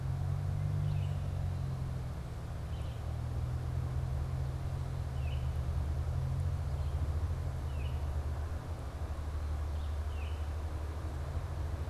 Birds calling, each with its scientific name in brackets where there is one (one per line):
Baltimore Oriole (Icterus galbula)
Red-eyed Vireo (Vireo olivaceus)